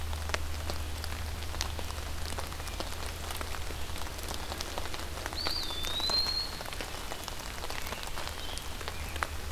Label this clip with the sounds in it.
Eastern Wood-Pewee, Scarlet Tanager